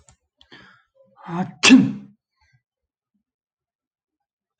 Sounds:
Sneeze